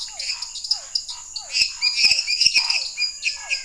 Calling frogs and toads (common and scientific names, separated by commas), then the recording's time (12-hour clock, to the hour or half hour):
lesser tree frog (Dendropsophus minutus), dwarf tree frog (Dendropsophus nanus), Physalaemus cuvieri, Scinax fuscovarius, Leptodactylus elenae, menwig frog (Physalaemus albonotatus)
9:30pm